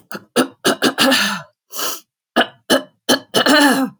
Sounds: Throat clearing